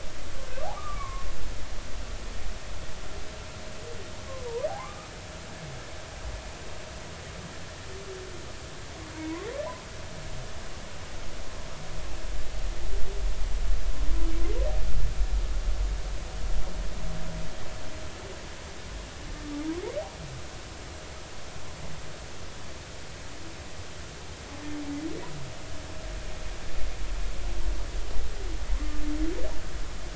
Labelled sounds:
0.7	1.3	humpback whale, 0.99 to 2.3 kHz
4.7	5.1	humpback whale, 0.80 to 1.3 kHz
9.1	9.5	humpback whale, 0.90 to 1.2 kHz
28.7	29.0	humpback whale, 0.99 to 1.2 kHz

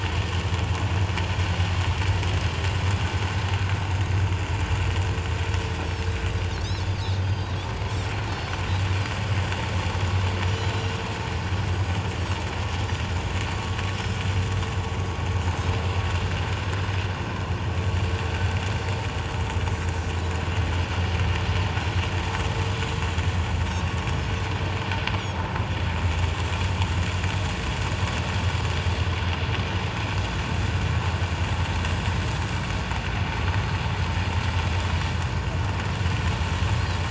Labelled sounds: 7.2	7.5	Pacific white-sided dolphin, 3.1 to 4.8 kHz
10.6	10.9	Pacific white-sided dolphin, 3.8 to 4.2 kHz
24.0	24.3	Pacific white-sided dolphin, 6.4 to 6.8 kHz

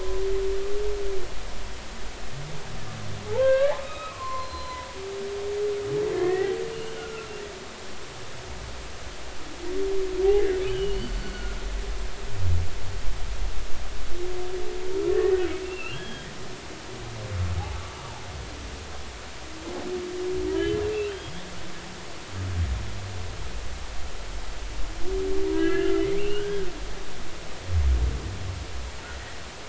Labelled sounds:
3.3	4.9	humpback whale, 0.80 to 4.2 kHz
6.1	7.3	humpback whale, 1.3 to 2.0 kHz
10.7	11.6	humpback whale, 1.4 to 4.6 kHz
15.1	16.3	humpback whale, 1.6 to 3.4 kHz
21.1	21.3	humpback whale, 3.0 to 3.3 kHz
25.5	26.7	humpback whale, 1.2 to 3.4 kHz

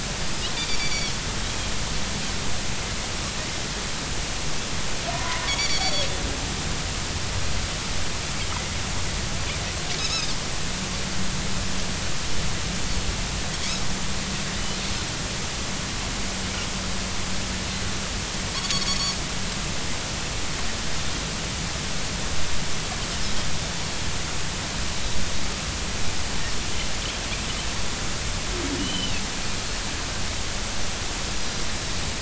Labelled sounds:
0.5	1.2	Pacific white-sided dolphin, 2.2 to 4.7 kHz
5.1	6.1	Pacific white-sided dolphin, 0.93 to 7.0 kHz
10.0	10.3	Pacific white-sided dolphin, 4.8 to 5.4 kHz
18.5	19.2	Pacific white-sided dolphin, 3.3 to 4.6 kHz
28.8	29.2	Pacific white-sided dolphin, 2.5 to 4.1 kHz

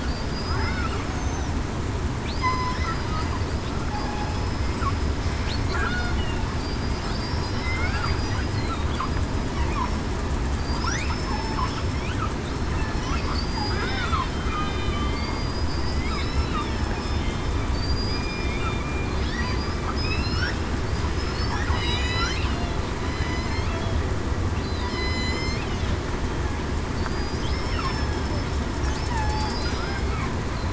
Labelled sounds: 0.1	0.7	killer whale, southern resident, 4.5 to 5.1 kHz
1.1	1.5	killer whale, southern resident, 5.8 to 6.6 kHz
2.3	2.9	killer whale, southern resident, 0.96 to 5.2 kHz
7.1	7.9	killer whale, southern resident, 2.0 to 5.0 kHz
10.6	11.9	killer whale, southern resident, 4.6 to 5.3 kHz
13.2	14.2	killer whale, southern resident, 3.3 to 5.0 kHz
14.5	15.3	killer whale, southern resident, 2.4 to 3.3 kHz
15.7	16.0	killer whale, southern resident, 4.6 to 4.9 kHz
17.7	18.5	killer whale, southern resident, 4.5 to 5.2 kHz
19.9	20.4	killer whale, southern resident, 2.4 to 5.3 kHz
20.9	21.4	killer whale, southern resident, 4.9 to 5.2 kHz
21.6	22.0	killer whale, southern resident, 4.9 to 5.0 kHz
23.1	23.7	killer whale, southern resident, 1.9 to 4.3 kHz
24.8	25.6	killer whale, southern resident, 1.9 to 5.3 kHz
27.1	28.5	killer whale, southern resident, 4.8 to 5.4 kHz
29.1	29.5	killer whale, southern resident, 0.80 to 1.0 kHz

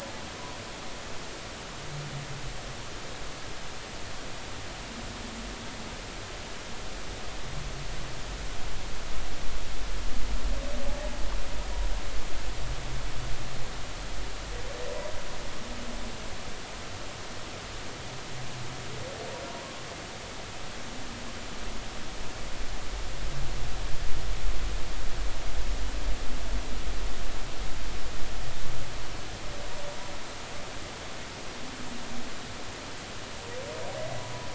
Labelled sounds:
10.9	11.1	humpback whale, 0.80 to 0.99 kHz

